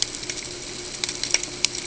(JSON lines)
{"label": "ambient", "recorder": "HydroMoth"}